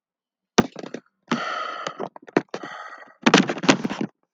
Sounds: Sigh